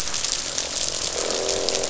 {"label": "biophony, croak", "recorder": "SoundTrap 500"}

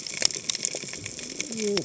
{"label": "biophony, cascading saw", "recorder": "HydroMoth"}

